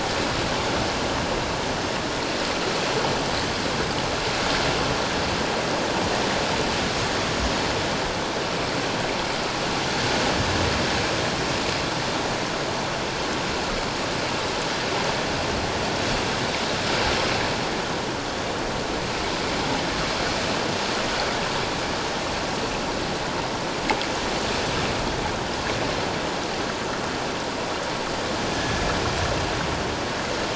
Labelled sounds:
28.5	28.8	killer whale, northern resident, G clan, 1.7 to 1.8 kHz

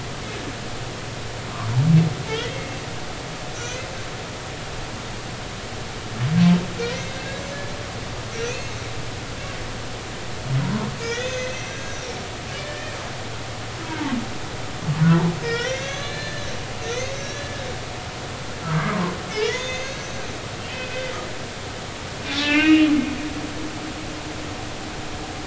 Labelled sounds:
2.3	2.8	humpback whale, 1.7 to 3.4 kHz
3.5	3.9	humpback whale, 5.7 to 6.4 kHz
6.8	7.1	humpback whale, 4.1 to 4.3 kHz
8.3	8.7	humpback whale, 2.4 to 2.8 kHz
11.0	12.2	humpback whale, 1.6 to 6.5 kHz
12.5	12.9	humpback whale, 1.6 to 3.2 kHz
13.8	14.1	humpback whale, 0.83 to 0.99 kHz
15.4	16.5	humpback whale, 1.1 to 6.5 kHz
16.8	17.7	humpback whale, 1.6 to 6.6 kHz
18.7	20.2	humpback whale, 1.1 to 6.8 kHz
20.6	21.1	humpback whale, 2.4 to 3.3 kHz
22.3	22.9	humpback whale, 1.7 to 2.8 kHz

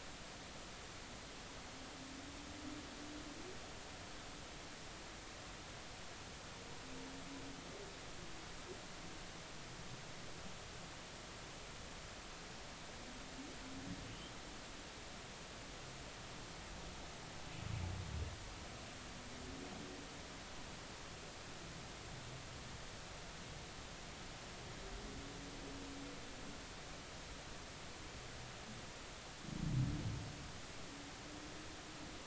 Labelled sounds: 14.1	14.3	humpback whale, 2.8 to 3.3 kHz

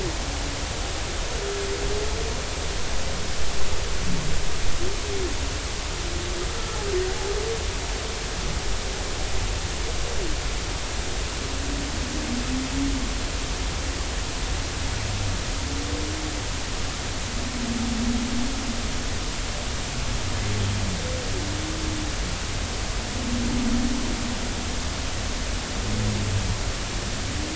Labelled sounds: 6.5	6.8	humpback whale, 1.3 to 1.4 kHz

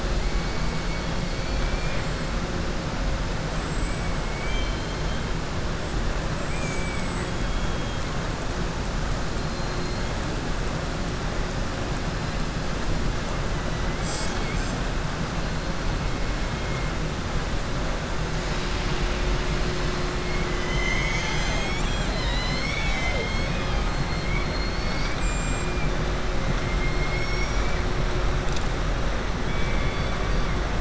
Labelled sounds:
1.4	2.2	killer whale, southern resident, 1.9 to 3.6 kHz
4.3	5.2	killer whale, southern resident, 2.1 to 4.2 kHz
6.4	8.0	killer whale, southern resident, 1.9 to 3.4 kHz
9.4	10.1	killer whale, southern resident, 3.3 to 4.4 kHz
24.2	25.2	killer whale, southern resident, 2.2 to 5.8 kHz
26.7	27.8	killer whale, southern resident, 1.5 to 7.6 kHz
29.4	30.2	killer whale, southern resident, 2.1 to 4.2 kHz

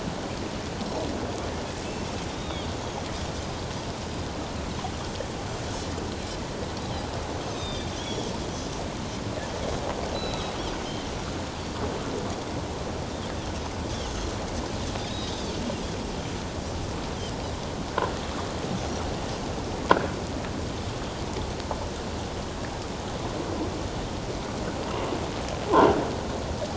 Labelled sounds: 1.8	2.7	Pacific white-sided dolphin, 2.6 to 3.8 kHz
7.4	8.3	Pacific white-sided dolphin, 2.3 to 6.5 kHz
10.1	10.5	Pacific white-sided dolphin, 2.5 to 7.9 kHz
13.9	14.1	Pacific white-sided dolphin, 2.7 to 3.5 kHz
15.0	15.5	Pacific white-sided dolphin, 3.7 to 5.1 kHz
17.9	18.2	croaking sound likely from a nearby submerged object, 1.3 to 1.7 kHz
18.8	19.0	Pacific white-sided dolphin, 5.5 to 5.9 kHz

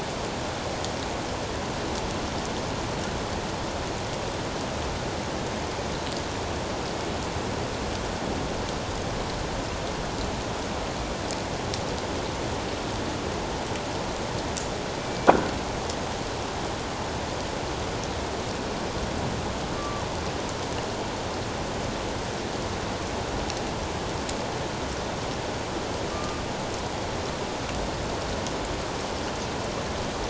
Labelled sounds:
15.0	15.3	killer whale, northern resident, G clan, 2.3 to 2.4 kHz
19.8	20.0	killer whale, northern resident, G clan, 1.1 to 1.2 kHz
26.1	26.4	killer whale, northern resident, G clan, 1.1 to 1.2 kHz

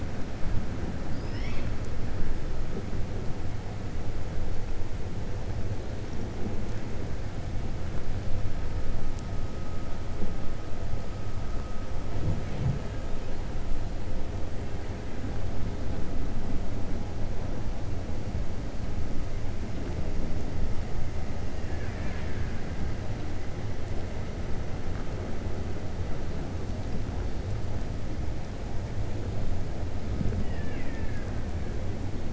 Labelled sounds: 21.5	22.6	killer whale, Bigg's (transient), 1.0 to 4.2 kHz

